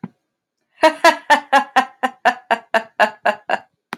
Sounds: Laughter